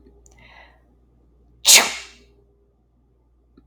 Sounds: Sneeze